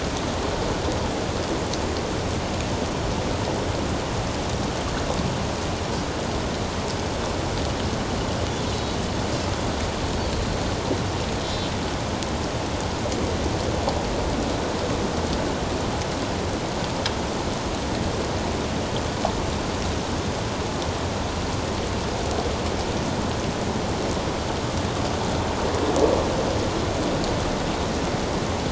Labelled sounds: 11.4	11.7	Pacific white-sided dolphin, 3.8 to 4.1 kHz

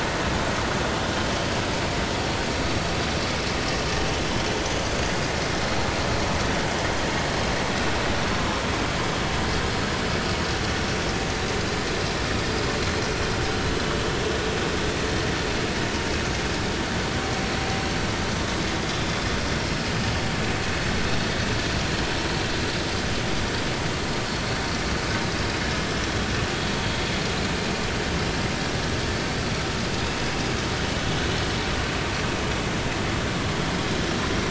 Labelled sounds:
18.9	19.2	vessel noise, 3.5 to 3.7 kHz

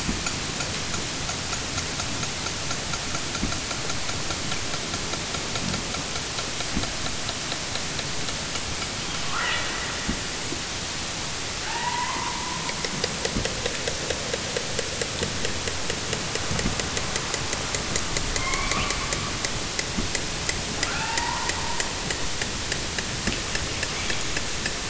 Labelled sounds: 9.2	10.4	killer whale, southern Alaska resident, 0.50 to 4.5 kHz
11.5	13.1	killer whale, southern Alaska resident, 0.41 to 4.5 kHz
18.2	19.5	killer whale, southern Alaska resident, 0.59 to 3.7 kHz
20.8	22.2	killer whale, southern Alaska resident, 0.41 to 5.1 kHz
23.8	24.8	killer whale, southern Alaska resident, 1.7 to 7.0 kHz

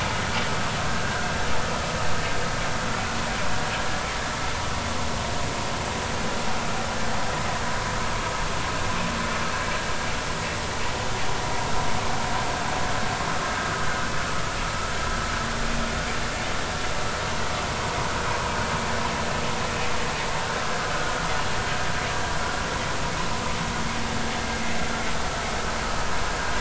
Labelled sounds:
0.9	1.2	vessel noise, 1.4 to 1.7 kHz
18.3	18.5	vessel noise, 0.93 to 1.1 kHz

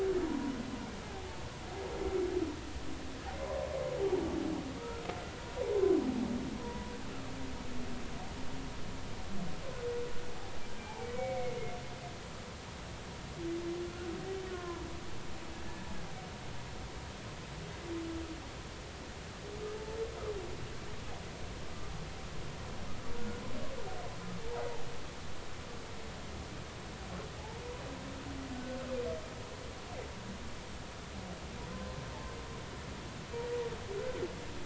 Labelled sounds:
0.3	0.6	humpback whale, 0.93 to 1.1 kHz
4.8	5.0	humpback whale, 1.2 to 1.5 kHz
6.6	6.9	humpback whale, 0.93 to 1.1 kHz
11.0	11.6	humpback whale, 2.1 to 2.3 kHz
13.9	14.1	humpback whale, 1.3 to 1.5 kHz
14.5	14.8	humpback whale, 0.90 to 1.8 kHz

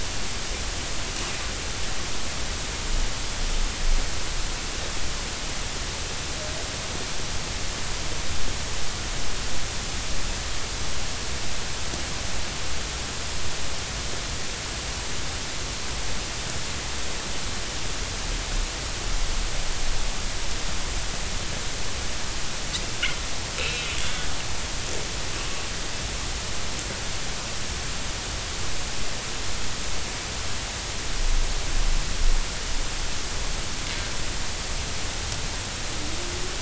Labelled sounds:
23.6	24.3	killer whale, northern resident, 2.4 to 3.5 kHz

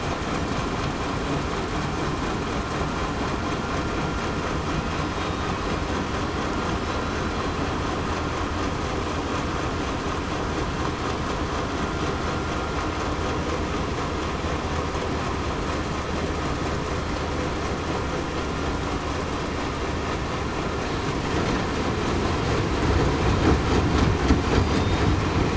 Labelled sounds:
24.5	24.8	killer whale, southern resident, 4.6 to 4.9 kHz

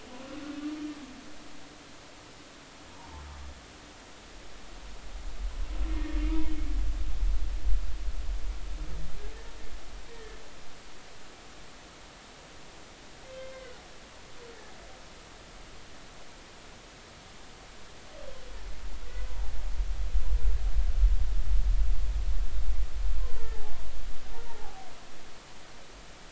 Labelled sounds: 2.9	3.2	humpback whale, 0.80 to 1.1 kHz
5.9	6.2	humpback whale, 1.7 to 1.9 kHz
10.1	10.4	humpback whale, 1.7 to 1.9 kHz
13.4	13.7	humpback whale, 1.9 to 2.1 kHz
24.4	24.9	humpback whale, 0.80 to 0.99 kHz

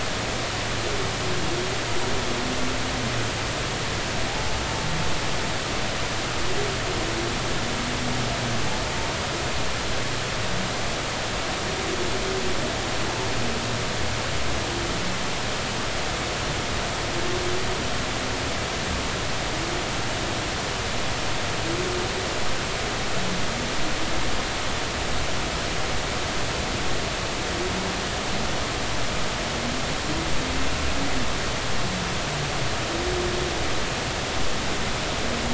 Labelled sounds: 4.3	4.5	humpback whale, 0.80 to 0.96 kHz

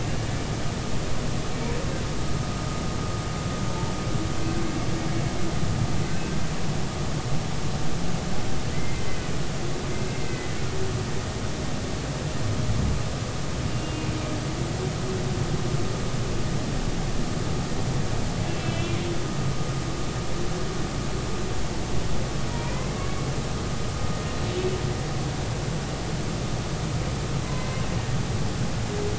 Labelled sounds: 3.7	3.9	humpback whale, 0.83 to 0.96 kHz
8.7	9.3	humpback whale, 1.9 to 2.1 kHz
10.1	10.6	humpback whale, 2.0 to 2.2 kHz
13.7	14.1	humpback whale, 2.7 to 2.9 kHz
18.5	18.9	humpback whale, 2.3 to 3.1 kHz
22.7	23.0	humpback whale, 1.9 to 2.2 kHz

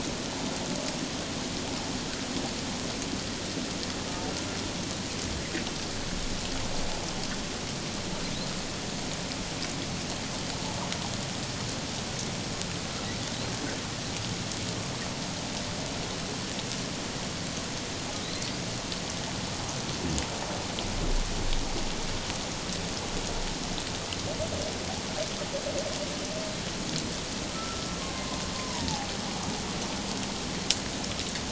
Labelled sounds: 27.5	29.1	humpback whale, 0.78 to 1.4 kHz

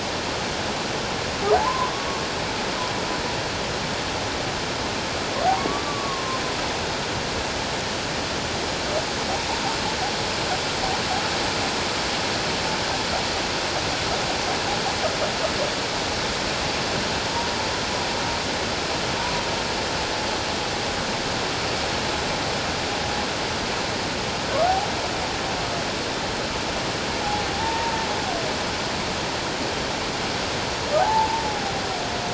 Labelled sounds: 1.5	1.9	humpback whale, 0.78 to 1.2 kHz
5.5	6.4	humpback whale, 0.78 to 1.2 kHz
27.2	28.0	humpback whale, 0.78 to 0.97 kHz
31.0	31.4	humpback whale, 0.78 to 1.0 kHz

